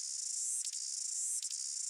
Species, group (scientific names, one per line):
Amphipsalta zelandica
Cicadidae